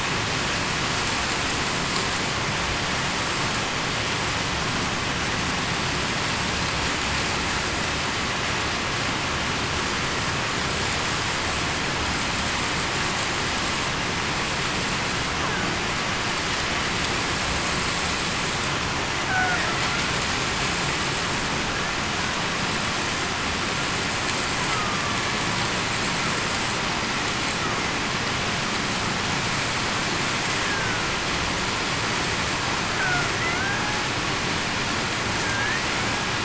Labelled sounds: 24.7	25.1	killer whale, Bigg's (transient), 1.1 to 1.3 kHz
30.6	31.1	killer whale, Bigg's (transient), 1.4 to 1.8 kHz
35.4	35.8	killer whale, Bigg's (transient), 1.6 to 1.9 kHz

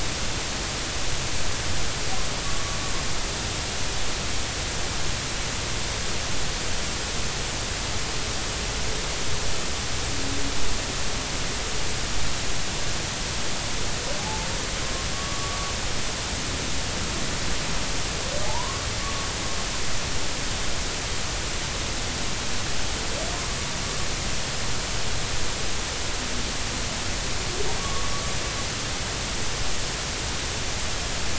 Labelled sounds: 14.2	15.7	humpback whale, 0.80 to 1.2 kHz
18.5	19.3	humpback whale, 0.80 to 1.2 kHz
27.8	28.2	humpback whale, 1.1 to 1.2 kHz

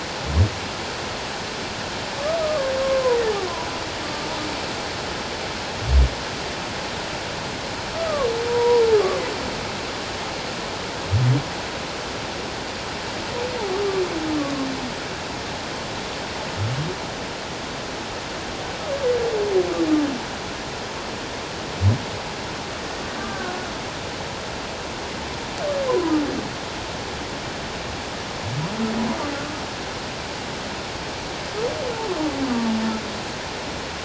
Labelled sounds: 2.4	3.2	humpback whale, 0.91 to 1.3 kHz
7.9	9.2	humpback whale, 0.91 to 1.3 kHz
23.2	23.5	humpback whale, 1.1 to 1.6 kHz
25.9	26.1	humpback whale, 0.91 to 1.1 kHz

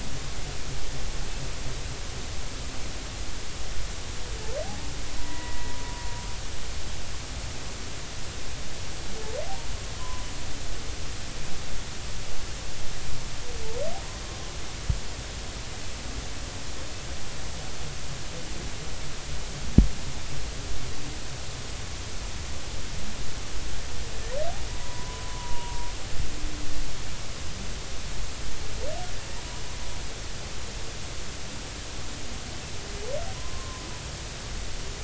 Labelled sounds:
5.2	5.7	humpback whale, 0.93 to 2.0 kHz
10.0	10.3	humpback whale, 0.96 to 1.1 kHz
24.7	25.9	humpback whale, 0.90 to 1.1 kHz
33.3	33.9	humpback whale, 0.96 to 1.1 kHz

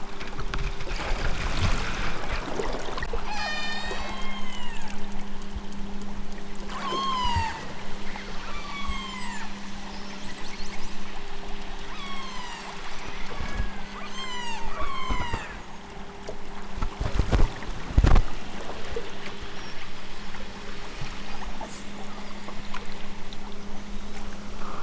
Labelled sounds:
3.2	5.0	killer whale, southern Alaska resident, 0.46 to 8.0 kHz
6.6	7.7	killer whale, southern Alaska resident, 0.46 to 8.0 kHz
8.4	9.5	killer whale, southern Alaska resident, 0.64 to 8.0 kHz
11.9	12.9	killer whale, southern Alaska resident, 0.55 to 8.0 kHz
13.3	15.6	killer whale, southern Alaska resident, 0.41 to 8.0 kHz
21.2	21.7	killer whale, southern Alaska resident, 4.1 to 8.0 kHz

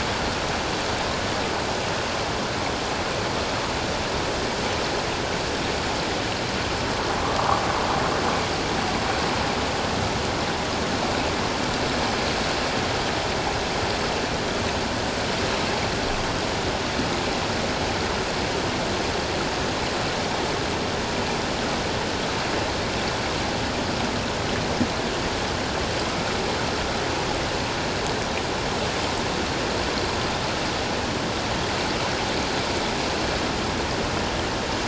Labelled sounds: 7.2	7.6	sound from a nearby beach, 0.91 to 1.3 kHz

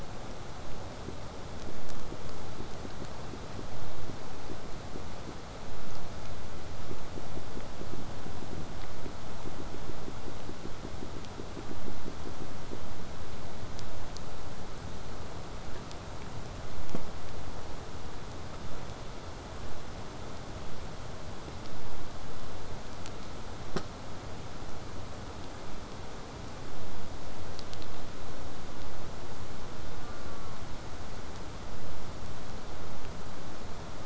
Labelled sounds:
29.9	30.6	killer whale, southern resident, J pod, call S04, 0.19 to 1.6 kHz

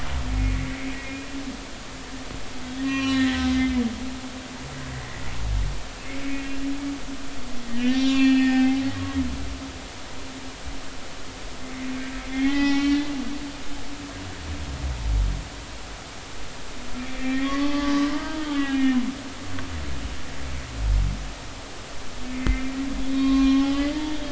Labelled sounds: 0.3	1.3	humpback whale, 2.1 to 2.5 kHz
2.8	3.8	humpback whale, 1.0 to 6.0 kHz
4.9	5.2	humpback whale, 1.9 to 2.0 kHz
7.7	8.8	humpback whale, 0.80 to 6.0 kHz
12.3	13.1	humpback whale, 0.80 to 5.7 kHz
17.0	19.0	humpback whale, 0.80 to 3.4 kHz
19.5	19.8	humpback whale, 2.7 to 2.9 kHz
22.2	24.2	humpback whale, 0.86 to 4.1 kHz

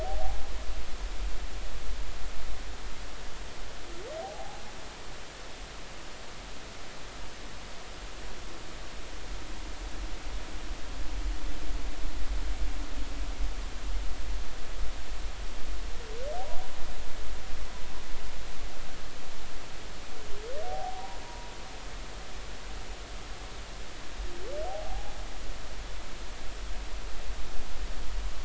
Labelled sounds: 0.0	0.4	humpback whale, 0.80 to 0.86 kHz
4.2	4.6	humpback whale, 0.80 to 0.90 kHz
20.6	21.5	humpback whale, 0.80 to 0.99 kHz
24.7	25.1	humpback whale, 0.80 to 0.90 kHz

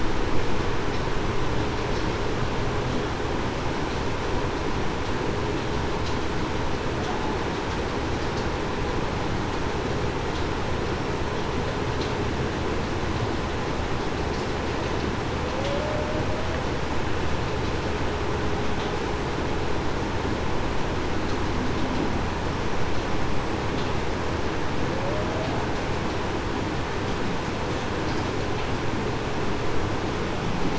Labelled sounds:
15.6	16.1	humpback whale, 0.52 to 0.63 kHz

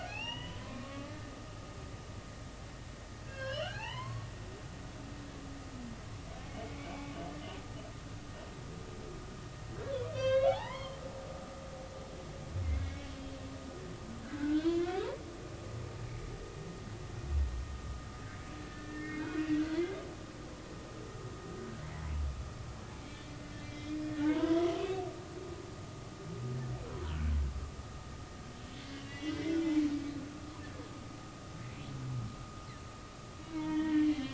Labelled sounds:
0.0	1.1	humpback whale, 0.80 to 6.0 kHz
3.2	4.3	humpback whale, 0.80 to 4.4 kHz
6.6	7.1	humpback whale, 2.1 to 2.6 kHz
10.1	11.0	humpback whale, 0.80 to 4.9 kHz
12.8	13.1	humpback whale, 2.1 to 2.3 kHz
14.2	14.9	humpback whale, 0.96 to 3.6 kHz
18.6	19.5	humpback whale, 1.4 to 2.6 kHz
19.7	20.0	humpback whale, 1.9 to 2.1 kHz
23.6	25.1	humpback whale, 0.83 to 3.4 kHz
29.0	29.7	humpback whale, 1.9 to 3.5 kHz
33.4	34.3	humpback whale, 0.86 to 4.0 kHz

